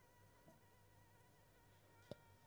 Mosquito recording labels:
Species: Anopheles squamosus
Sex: female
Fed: unfed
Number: one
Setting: cup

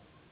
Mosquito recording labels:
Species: Anopheles gambiae s.s.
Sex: female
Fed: unfed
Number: one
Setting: insect culture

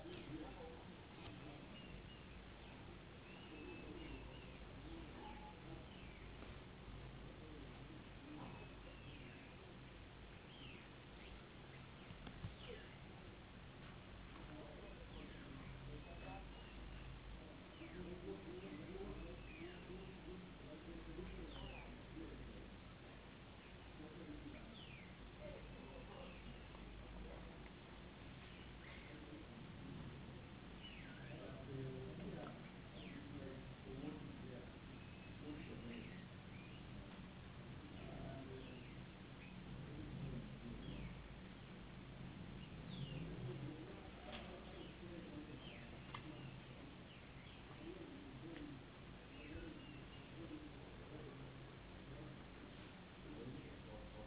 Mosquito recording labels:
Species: no mosquito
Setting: insect culture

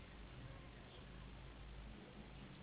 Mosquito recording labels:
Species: Anopheles gambiae s.s.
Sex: female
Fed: unfed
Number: one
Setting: insect culture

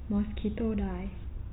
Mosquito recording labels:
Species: mosquito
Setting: cup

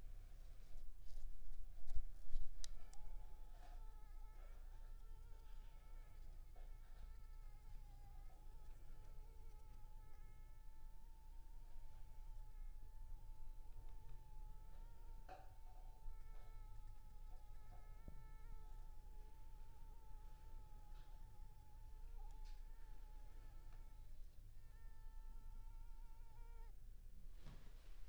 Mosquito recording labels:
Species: Culex pipiens complex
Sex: female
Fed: unfed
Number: one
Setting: cup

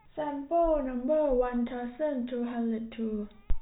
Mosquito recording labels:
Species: no mosquito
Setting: cup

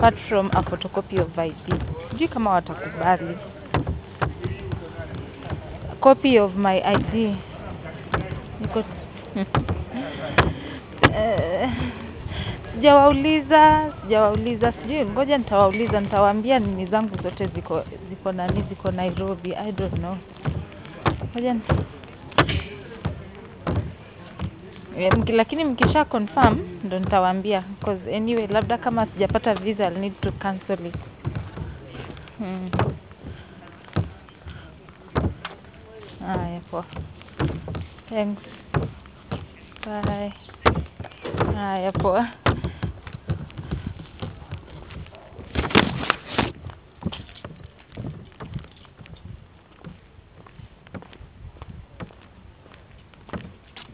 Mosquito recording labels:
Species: no mosquito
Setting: insect culture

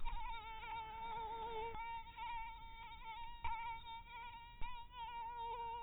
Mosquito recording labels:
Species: mosquito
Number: one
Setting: cup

